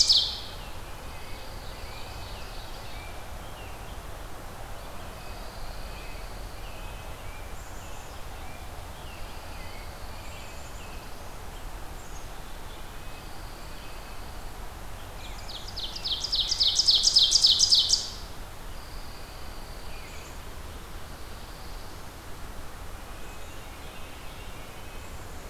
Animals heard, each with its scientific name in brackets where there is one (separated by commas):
Red-breasted Nuthatch (Sitta canadensis), American Robin (Turdus migratorius), Black-capped Chickadee (Poecile atricapillus), Eastern Wood-Pewee (Contopus virens), Pine Warbler (Setophaga pinus), Ovenbird (Seiurus aurocapilla)